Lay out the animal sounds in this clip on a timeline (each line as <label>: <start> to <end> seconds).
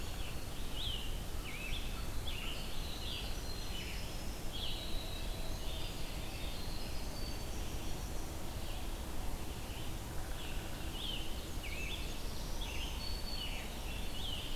Black-throated Green Warbler (Setophaga virens): 0.0 to 0.5 seconds
Scarlet Tanager (Piranga olivacea): 0.0 to 4.9 seconds
Red-eyed Vireo (Vireo olivaceus): 0.0 to 14.2 seconds
Winter Wren (Troglodytes hiemalis): 2.6 to 8.6 seconds
Scarlet Tanager (Piranga olivacea): 10.9 to 14.6 seconds
Golden-crowned Kinglet (Regulus satrapa): 11.0 to 12.3 seconds
Black-throated Green Warbler (Setophaga virens): 12.0 to 14.0 seconds